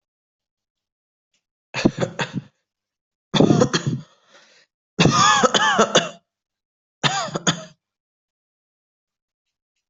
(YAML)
expert_labels:
- quality: ok
  cough_type: dry
  dyspnea: false
  wheezing: false
  stridor: false
  choking: false
  congestion: false
  nothing: true
  diagnosis: lower respiratory tract infection
  severity: mild